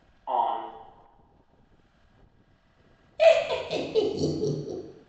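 First, someone says "On." Then laughter can be heard. A soft, steady noise runs about 35 dB below the sounds.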